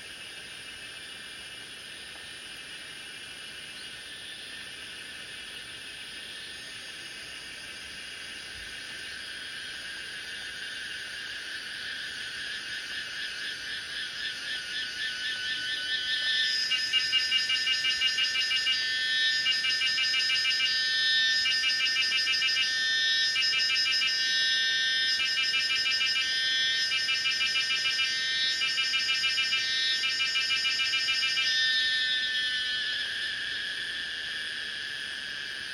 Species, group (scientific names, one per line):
Pomponia yayeyamana
Cicadidae